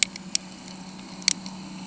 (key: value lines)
label: anthrophony, boat engine
recorder: HydroMoth